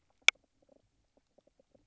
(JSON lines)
{"label": "biophony, knock croak", "recorder": "SoundTrap 300"}